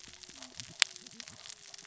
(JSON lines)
{"label": "biophony, cascading saw", "recorder": "SoundTrap 600 or HydroMoth"}